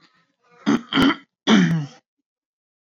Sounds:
Throat clearing